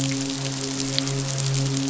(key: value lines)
label: biophony, midshipman
recorder: SoundTrap 500